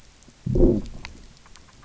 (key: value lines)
label: biophony, low growl
recorder: SoundTrap 300